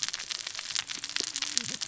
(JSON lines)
{"label": "biophony, cascading saw", "recorder": "SoundTrap 600 or HydroMoth"}